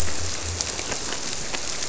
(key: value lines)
label: biophony
recorder: SoundTrap 300